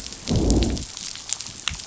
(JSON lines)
{"label": "biophony, growl", "recorder": "SoundTrap 500"}